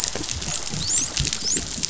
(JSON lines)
{"label": "biophony, dolphin", "recorder": "SoundTrap 500"}